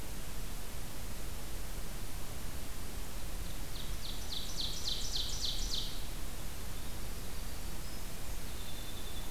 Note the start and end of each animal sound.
3.2s-6.1s: Ovenbird (Seiurus aurocapilla)
6.9s-9.3s: Winter Wren (Troglodytes hiemalis)

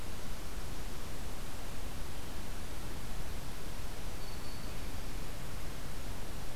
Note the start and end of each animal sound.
4.1s-4.9s: Black-capped Chickadee (Poecile atricapillus)

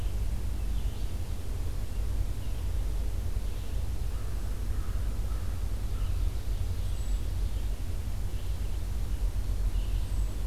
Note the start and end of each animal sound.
0.0s-10.2s: Red-eyed Vireo (Vireo olivaceus)
4.1s-6.3s: American Crow (Corvus brachyrhynchos)
5.6s-7.7s: Ovenbird (Seiurus aurocapilla)
6.8s-7.2s: Hermit Thrush (Catharus guttatus)
9.9s-10.5s: Hermit Thrush (Catharus guttatus)

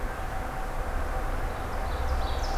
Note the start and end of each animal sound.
1.7s-2.6s: Ovenbird (Seiurus aurocapilla)

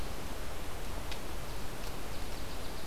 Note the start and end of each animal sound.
1.5s-2.9s: Song Sparrow (Melospiza melodia)

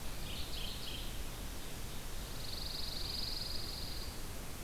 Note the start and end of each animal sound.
0.0s-1.4s: Mourning Warbler (Geothlypis philadelphia)
2.0s-4.6s: Pine Warbler (Setophaga pinus)

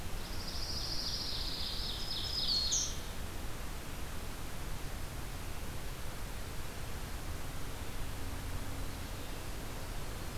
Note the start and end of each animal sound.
0.0s-1.8s: Pine Warbler (Setophaga pinus)
0.1s-3.2s: Ovenbird (Seiurus aurocapilla)
1.4s-3.0s: Black-throated Green Warbler (Setophaga virens)

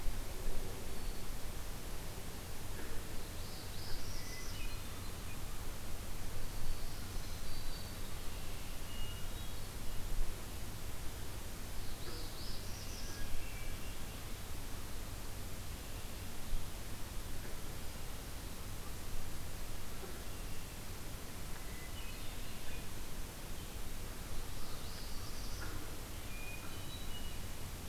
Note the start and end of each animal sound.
0.8s-1.5s: Black-throated Green Warbler (Setophaga virens)
3.2s-4.6s: Northern Parula (Setophaga americana)
4.0s-5.0s: Hermit Thrush (Catharus guttatus)
6.5s-8.1s: Black-throated Green Warbler (Setophaga virens)
8.8s-9.8s: Hermit Thrush (Catharus guttatus)
11.8s-13.3s: Northern Parula (Setophaga americana)
13.0s-13.9s: Hermit Thrush (Catharus guttatus)
21.6s-22.7s: Hermit Thrush (Catharus guttatus)
24.5s-25.7s: Northern Parula (Setophaga americana)
26.3s-27.4s: Hermit Thrush (Catharus guttatus)

